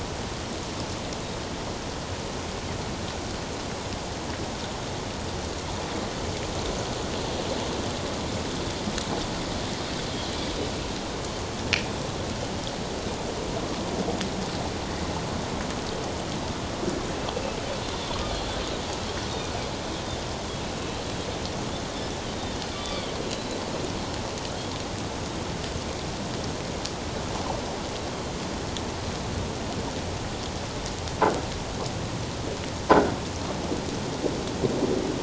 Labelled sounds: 20.7	21.0	Pacific white-sided dolphin, 3.8 to 4.0 kHz
22.7	23.6	Pacific white-sided dolphin, 1.1 to 4.1 kHz

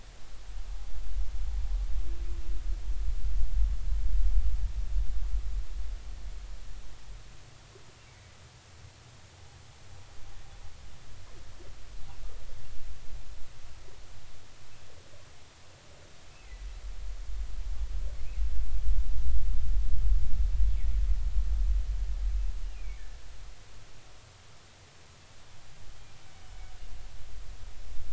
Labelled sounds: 22.8	23.0	humpback whale, 2.1 to 2.5 kHz

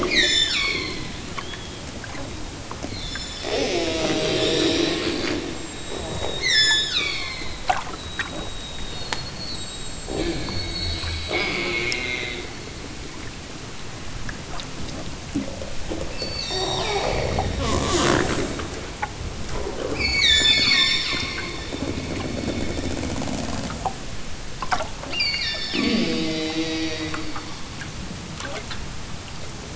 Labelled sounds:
0.0	1.0	killer whale, southern Alaska resident, 0.69 to 8.0 kHz
3.0	3.7	killer whale, southern Alaska resident, 2.9 to 8.0 kHz
4.1	5.1	killer whale, southern Alaska resident, 3.2 to 8.0 kHz
6.4	7.6	killer whale, southern Alaska resident, 0.69 to 8.0 kHz
16.1	17.3	killer whale, southern Alaska resident, 1.5 to 8.0 kHz
19.9	20.9	killer whale, southern Alaska resident, 1.4 to 8.0 kHz
25.0	26.1	killer whale, southern Alaska resident, 1.5 to 8.0 kHz

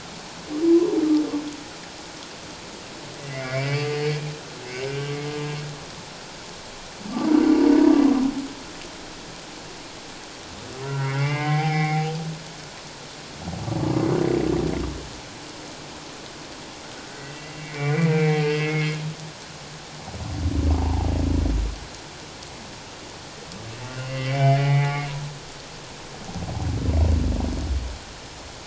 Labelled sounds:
3.3	4.1	humpback whale, 1.8 to 2.7 kHz
4.9	5.1	humpback whale, 1.5 to 1.6 kHz
10.8	12.1	humpback whale, 0.78 to 2.9 kHz
17.2	19.0	humpback whale, 0.78 to 2.9 kHz
20.8	21.1	humpback whale, 0.78 to 1.0 kHz
23.9	24.9	humpback whale, 1.9 to 2.9 kHz

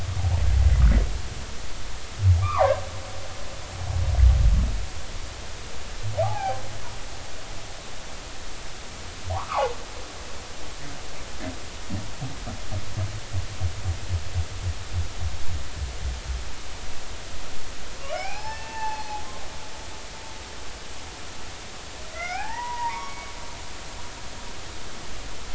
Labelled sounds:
2.4	2.8	humpback whale, 0.80 to 1.4 kHz
6.2	6.6	humpback whale, 0.80 to 1.7 kHz
9.3	9.7	humpback whale, 0.80 to 2.6 kHz
18.0	19.2	humpback whale, 0.80 to 3.1 kHz
22.1	23.3	humpback whale, 0.80 to 2.6 kHz

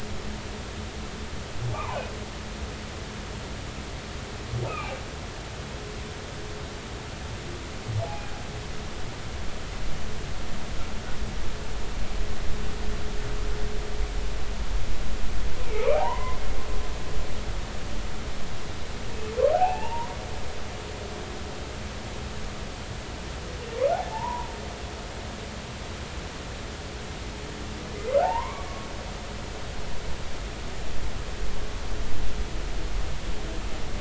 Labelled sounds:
1.7	2.1	humpback whale, 0.80 to 1.3 kHz
4.7	4.9	humpback whale, 2.3 to 2.7 kHz
8.0	8.3	humpback whale, 0.80 to 0.90 kHz
15.7	16.4	humpback whale, 0.80 to 2.5 kHz
19.5	20.2	humpback whale, 0.80 to 2.8 kHz
24.1	24.5	humpback whale, 0.83 to 1.1 kHz
28.2	28.7	humpback whale, 0.80 to 2.3 kHz

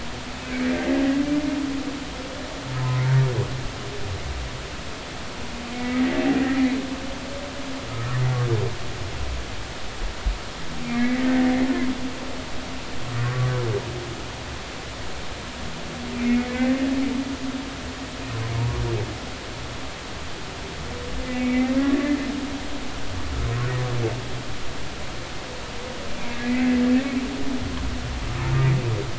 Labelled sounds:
0.5	0.7	humpback whale, 2.0 to 2.5 kHz
2.7	3.0	humpback whale, 0.86 to 1.1 kHz
5.7	6.0	humpback whale, 1.9 to 2.4 kHz
10.8	11.3	humpback whale, 1.8 to 2.3 kHz
13.2	13.5	humpback whale, 1.1 to 1.2 kHz
16.2	16.8	humpback whale, 1.7 to 2.4 kHz
21.2	21.7	humpback whale, 2.0 to 2.6 kHz
26.4	26.7	humpback whale, 1.9 to 2.1 kHz

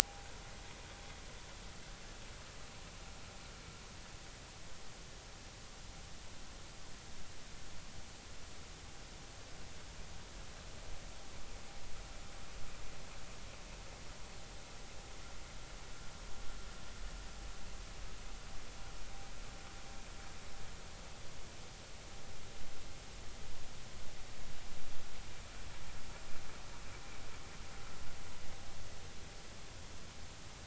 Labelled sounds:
0.0	0.3	vessel noise, 0.80 to 0.99 kHz

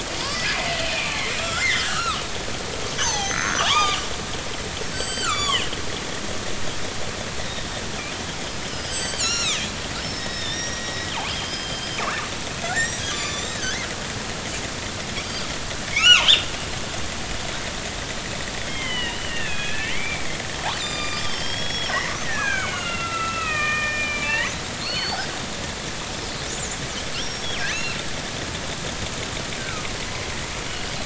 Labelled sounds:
0.0	2.2	killer whale, northern resident, G clan, 0.90 to 5.4 kHz
3.0	4.0	killer whale, northern resident, G clan, 0.80 to 6.4 kHz
4.9	5.7	killer whale, northern resident, G clan, 0.99 to 7.9 kHz
8.4	9.6	killer whale, northern resident, G clan, 1.2 to 8.0 kHz
10.0	12.0	killer whale, northern resident, G clan, 1.7 to 5.7 kHz
12.6	13.8	killer whale, northern resident, G clan, 1.0 to 7.9 kHz
15.2	15.5	killer whale, northern resident, G clan, 4.6 to 4.8 kHz
15.9	16.5	killer whale, northern resident, G clan, 0.86 to 7.3 kHz
18.7	22.0	killer whale, northern resident, G clan, 1.1 to 7.3 kHz
22.2	24.5	killer whale, northern resident, G clan, 0.83 to 3.2 kHz
24.8	25.2	killer whale, northern resident, G clan, 2.5 to 4.7 kHz
26.5	28.0	killer whale, northern resident, G clan, 2.3 to 7.4 kHz
29.6	29.9	killer whale, northern resident, G clan, 1.2 to 1.6 kHz
30.7	30.9	killer whale, northern resident, G clan, 2.8 to 3.0 kHz

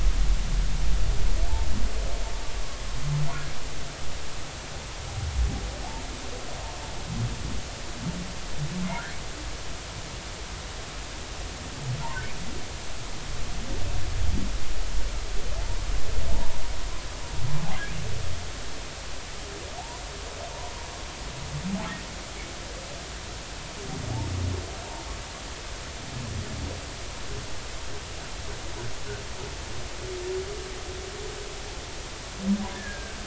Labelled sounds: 32.7	33.2	humpback whale, 1.5 to 1.8 kHz

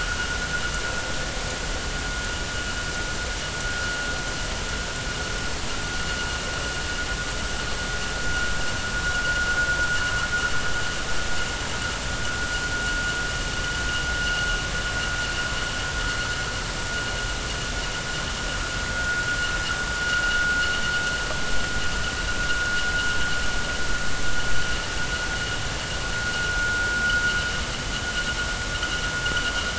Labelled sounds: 26.6	26.9	vessel noise, 1.4 to 1.5 kHz

